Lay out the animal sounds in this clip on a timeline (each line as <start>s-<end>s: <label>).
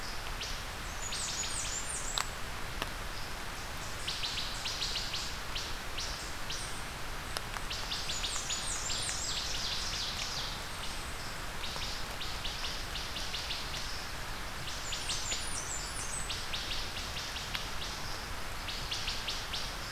0.0s-19.7s: Wood Thrush (Hylocichla mustelina)
0.8s-2.3s: Blackburnian Warbler (Setophaga fusca)
8.0s-9.6s: Blackburnian Warbler (Setophaga fusca)
8.7s-10.7s: Ovenbird (Seiurus aurocapilla)
14.7s-16.4s: Blackburnian Warbler (Setophaga fusca)